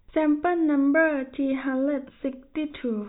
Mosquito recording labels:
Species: no mosquito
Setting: cup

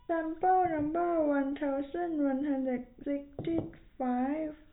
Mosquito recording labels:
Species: no mosquito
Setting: cup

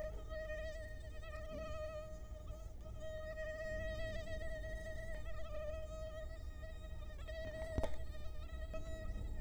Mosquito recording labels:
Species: Culex quinquefasciatus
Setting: cup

